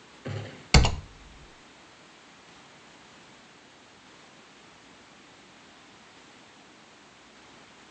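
At 0.24 seconds, gunfire can be heard. Then at 0.73 seconds, there is typing.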